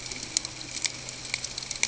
{"label": "ambient", "recorder": "HydroMoth"}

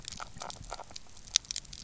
{"label": "biophony, grazing", "recorder": "SoundTrap 300"}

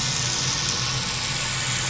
{"label": "anthrophony, boat engine", "recorder": "SoundTrap 500"}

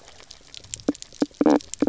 {"label": "biophony, knock croak", "recorder": "SoundTrap 300"}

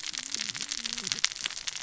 {"label": "biophony, cascading saw", "recorder": "SoundTrap 600 or HydroMoth"}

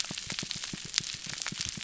{"label": "biophony, pulse", "recorder": "SoundTrap 300"}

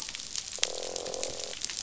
{"label": "biophony, croak", "recorder": "SoundTrap 500"}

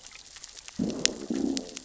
{"label": "biophony, growl", "recorder": "SoundTrap 600 or HydroMoth"}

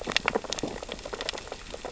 {"label": "biophony, sea urchins (Echinidae)", "recorder": "SoundTrap 600 or HydroMoth"}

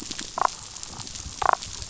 {"label": "biophony, damselfish", "recorder": "SoundTrap 500"}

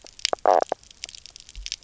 {"label": "biophony, knock croak", "recorder": "SoundTrap 300"}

